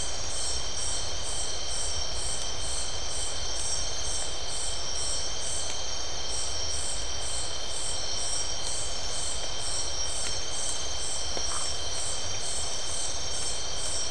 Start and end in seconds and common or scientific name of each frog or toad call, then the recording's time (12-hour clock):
11.5	11.7	Phyllomedusa distincta
11:45pm